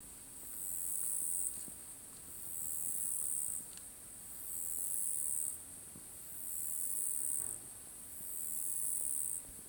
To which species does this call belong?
Uromenus rugosicollis